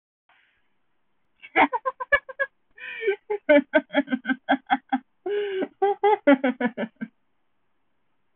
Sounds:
Laughter